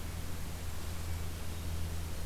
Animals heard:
forest ambience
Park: Katahdin Woods and Waters National Monument